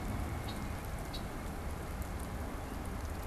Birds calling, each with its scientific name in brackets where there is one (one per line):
Red-winged Blackbird (Agelaius phoeniceus)